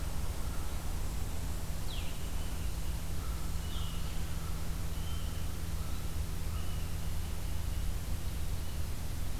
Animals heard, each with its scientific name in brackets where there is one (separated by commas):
Blue-headed Vireo (Vireo solitarius), American Crow (Corvus brachyrhynchos), Blue Jay (Cyanocitta cristata)